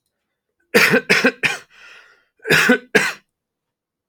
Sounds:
Cough